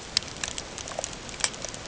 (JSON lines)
{"label": "ambient", "recorder": "HydroMoth"}